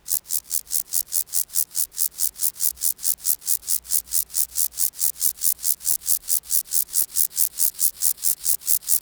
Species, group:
Chorthippus vagans
Orthoptera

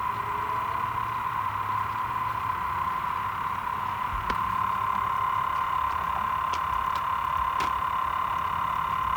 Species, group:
Cystosoma saundersii
Cicadidae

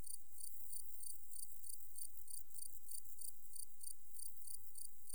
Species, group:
Gryllus campestris
Orthoptera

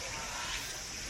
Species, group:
Meimuna opalifera
Cicadidae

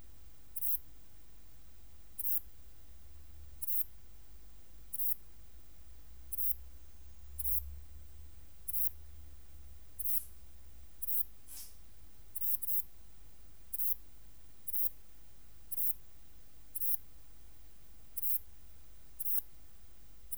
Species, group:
Ephippiger ephippiger
Orthoptera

